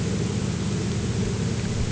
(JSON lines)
{"label": "anthrophony, boat engine", "recorder": "HydroMoth"}